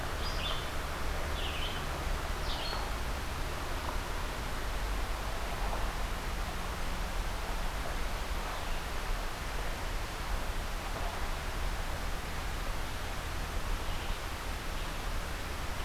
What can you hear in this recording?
Red-eyed Vireo